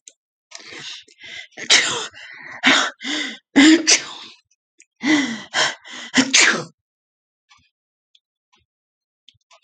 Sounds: Sneeze